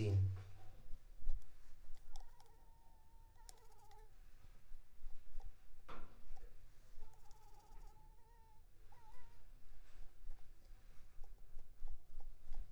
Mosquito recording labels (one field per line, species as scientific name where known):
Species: Anopheles arabiensis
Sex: female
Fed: unfed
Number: one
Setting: cup